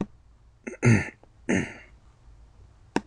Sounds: Throat clearing